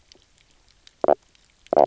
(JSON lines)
{"label": "biophony, knock croak", "recorder": "SoundTrap 300"}